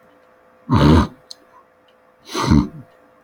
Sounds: Throat clearing